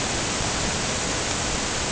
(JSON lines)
{"label": "ambient", "recorder": "HydroMoth"}